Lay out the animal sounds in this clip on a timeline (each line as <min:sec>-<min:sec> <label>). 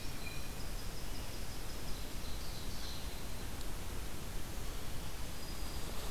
0:00.0-0:00.6 Blue Jay (Cyanocitta cristata)
0:00.0-0:02.3 Winter Wren (Troglodytes hiemalis)
0:02.2-0:03.4 Ovenbird (Seiurus aurocapilla)
0:05.0-0:06.1 Black-throated Green Warbler (Setophaga virens)